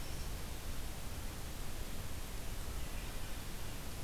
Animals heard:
forest ambience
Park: Marsh-Billings-Rockefeller National Historical Park